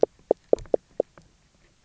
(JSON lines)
{"label": "biophony, knock croak", "recorder": "SoundTrap 300"}